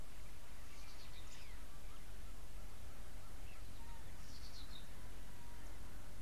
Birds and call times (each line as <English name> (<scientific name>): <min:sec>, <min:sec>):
Red-backed Scrub-Robin (Cercotrichas leucophrys): 0:04.5